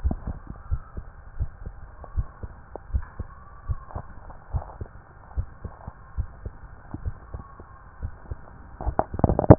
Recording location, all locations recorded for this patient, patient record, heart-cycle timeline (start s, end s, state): tricuspid valve (TV)
aortic valve (AV)+pulmonary valve (PV)+tricuspid valve (TV)+mitral valve (MV)
#Age: Child
#Sex: Male
#Height: 155.0 cm
#Weight: 46.8 kg
#Pregnancy status: False
#Murmur: Absent
#Murmur locations: nan
#Most audible location: nan
#Systolic murmur timing: nan
#Systolic murmur shape: nan
#Systolic murmur grading: nan
#Systolic murmur pitch: nan
#Systolic murmur quality: nan
#Diastolic murmur timing: nan
#Diastolic murmur shape: nan
#Diastolic murmur grading: nan
#Diastolic murmur pitch: nan
#Diastolic murmur quality: nan
#Outcome: Normal
#Campaign: 2015 screening campaign
0.00	0.36	unannotated
0.36	0.38	S2
0.38	0.70	diastole
0.70	0.82	S1
0.82	0.95	systole
0.95	1.06	S2
1.06	1.35	diastole
1.35	1.50	S1
1.50	1.62	systole
1.62	1.74	S2
1.74	2.12	diastole
2.12	2.28	S1
2.28	2.40	systole
2.40	2.50	S2
2.50	2.89	diastole
2.89	3.06	S1
3.06	3.17	systole
3.17	3.30	S2
3.30	3.64	diastole
3.64	3.80	S1
3.80	3.91	systole
3.91	4.06	S2
4.06	4.50	diastole
4.50	4.66	S1
4.66	4.77	systole
4.77	4.88	S2
4.88	5.33	diastole
5.33	5.48	S1
5.48	5.61	systole
5.61	5.72	S2
5.72	6.14	diastole
6.14	6.30	S1
6.30	6.42	systole
6.42	6.54	S2
6.54	7.00	diastole
7.00	7.14	S1
7.14	7.30	systole
7.30	7.42	S2
7.42	7.99	diastole
7.99	8.12	S1
8.12	8.27	systole
8.27	8.38	S2
8.38	8.58	diastole
8.58	8.59	S1
8.59	9.58	unannotated